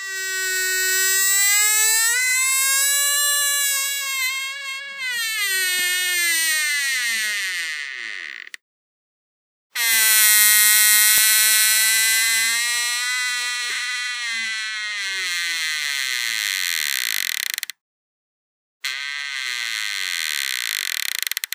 Are multiple people arguing?
no